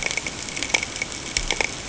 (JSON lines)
{"label": "ambient", "recorder": "HydroMoth"}